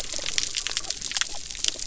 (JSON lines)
{"label": "biophony", "recorder": "SoundTrap 300"}